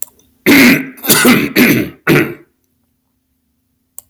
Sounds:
Throat clearing